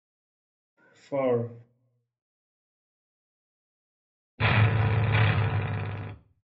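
First, someone says "four". Then an engine can be heard.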